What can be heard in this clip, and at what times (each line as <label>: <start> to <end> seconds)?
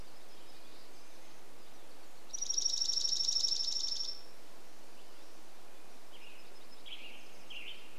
Red-breasted Nuthatch song: 0 to 2 seconds
warbler song: 0 to 2 seconds
Dark-eyed Junco song: 2 to 6 seconds
Red-breasted Nuthatch song: 4 to 6 seconds
unidentified sound: 4 to 6 seconds
Western Tanager song: 6 to 8 seconds
warbler song: 6 to 8 seconds